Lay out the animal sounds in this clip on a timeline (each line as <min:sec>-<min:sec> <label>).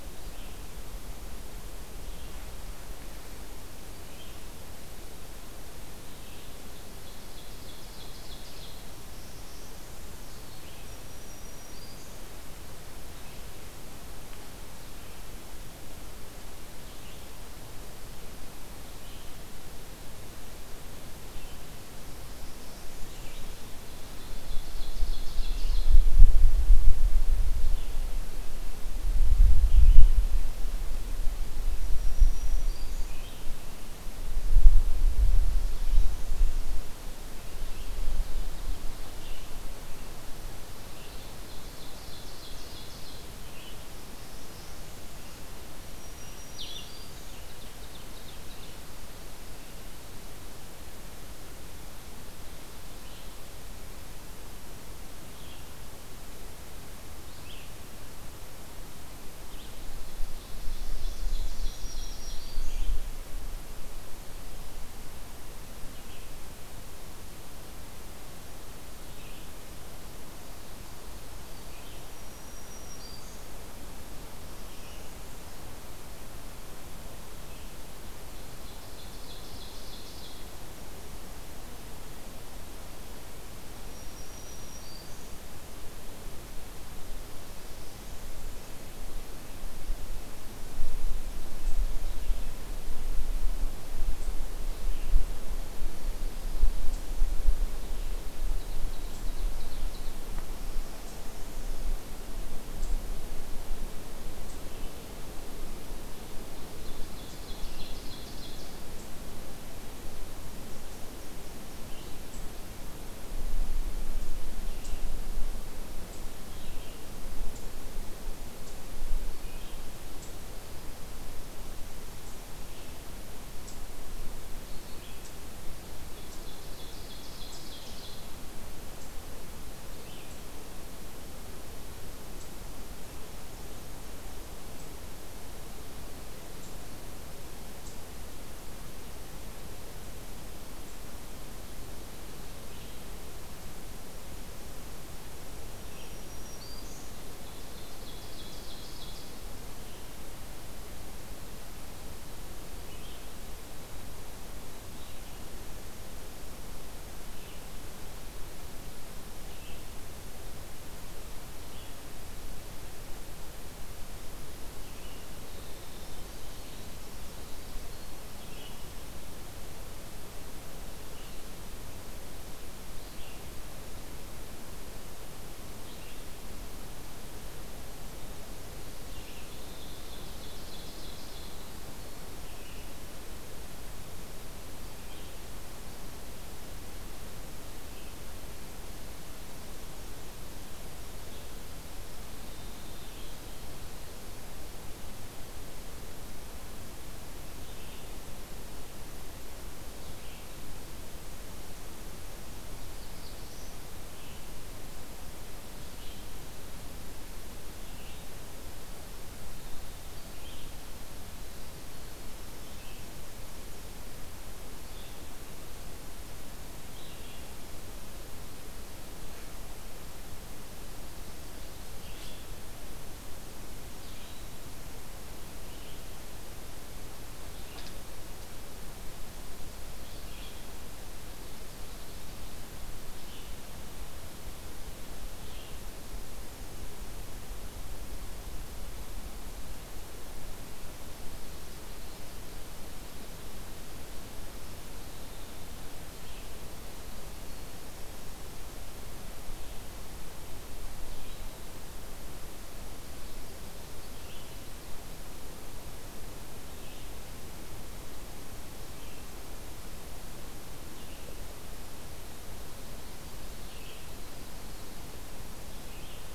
0:00.0-0:26.1 Red-eyed Vireo (Vireo olivaceus)
0:06.5-0:08.8 Ovenbird (Seiurus aurocapilla)
0:08.9-0:10.2 Northern Parula (Setophaga americana)
0:10.8-0:12.2 Black-throated Green Warbler (Setophaga virens)
0:22.1-0:23.6 Northern Parula (Setophaga americana)
0:23.9-0:25.9 Ovenbird (Seiurus aurocapilla)
0:27.4-0:36.2 Red-eyed Vireo (Vireo olivaceus)
0:31.8-0:33.2 Black-throated Green Warbler (Setophaga virens)
0:37.4-0:47.6 Red-eyed Vireo (Vireo olivaceus)
0:37.4-0:39.4 Ovenbird (Seiurus aurocapilla)
0:41.0-0:43.3 Ovenbird (Seiurus aurocapilla)
0:43.8-0:45.3 Northern Parula (Setophaga americana)
0:45.8-0:47.4 Black-throated Green Warbler (Setophaga virens)
0:46.4-0:47.0 Blue-headed Vireo (Vireo solitarius)
0:47.4-0:48.8 Ovenbird (Seiurus aurocapilla)
0:52.9-1:17.7 Red-eyed Vireo (Vireo olivaceus)
1:00.0-1:02.5 Ovenbird (Seiurus aurocapilla)
1:01.6-1:02.9 Black-throated Green Warbler (Setophaga virens)
1:12.0-1:13.4 Black-throated Green Warbler (Setophaga virens)
1:14.3-1:15.7 Northern Parula (Setophaga americana)
1:18.1-1:20.4 Ovenbird (Seiurus aurocapilla)
1:23.8-1:25.5 Black-throated Green Warbler (Setophaga virens)
1:27.3-1:28.8 Northern Parula (Setophaga americana)
1:38.4-1:40.2 Ovenbird (Seiurus aurocapilla)
1:40.4-1:41.9 Northern Parula (Setophaga americana)
1:46.6-1:48.8 Ovenbird (Seiurus aurocapilla)
1:51.7-2:10.3 Red-eyed Vireo (Vireo olivaceus)
2:06.0-2:08.2 Ovenbird (Seiurus aurocapilla)
2:22.5-3:13.4 Red-eyed Vireo (Vireo olivaceus)
2:25.7-2:27.2 Black-throated Green Warbler (Setophaga virens)
2:27.3-2:29.3 Ovenbird (Seiurus aurocapilla)
2:45.2-2:48.3 Winter Wren (Troglodytes hiemalis)
2:59.2-3:01.6 Ovenbird (Seiurus aurocapilla)
3:17.5-4:14.8 Red-eyed Vireo (Vireo olivaceus)
3:22.5-3:23.9 Black-throated Blue Warbler (Setophaga caerulescens)
4:16.6-4:26.3 Red-eyed Vireo (Vireo olivaceus)